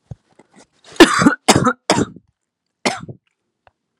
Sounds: Cough